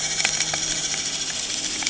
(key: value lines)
label: anthrophony, boat engine
recorder: HydroMoth